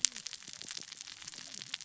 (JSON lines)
{"label": "biophony, cascading saw", "recorder": "SoundTrap 600 or HydroMoth"}